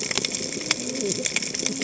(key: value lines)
label: biophony, cascading saw
recorder: HydroMoth